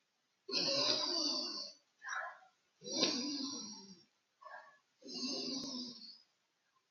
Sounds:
Sniff